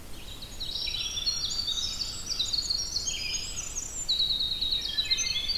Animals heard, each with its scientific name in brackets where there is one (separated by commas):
Wood Thrush (Hylocichla mustelina), Winter Wren (Troglodytes hiemalis), Rose-breasted Grosbeak (Pheucticus ludovicianus), Black-throated Green Warbler (Setophaga virens)